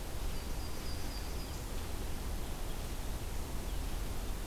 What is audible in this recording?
Yellow-rumped Warbler